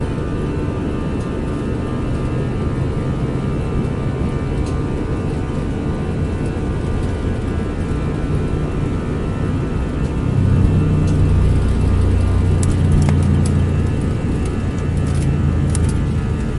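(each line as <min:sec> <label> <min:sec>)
0:00.0 Sounds during a flight in an airplane. 0:16.6
0:10.2 Vibrating sound. 0:16.6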